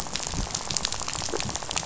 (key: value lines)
label: biophony, rattle
recorder: SoundTrap 500